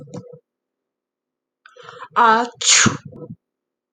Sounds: Sneeze